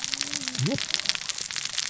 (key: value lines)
label: biophony, cascading saw
recorder: SoundTrap 600 or HydroMoth